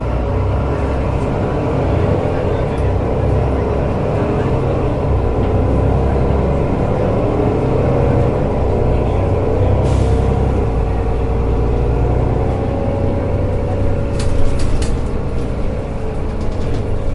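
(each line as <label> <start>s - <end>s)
Car engine sounds. 0.0s - 17.1s
People are talking quietly in the background. 0.0s - 17.1s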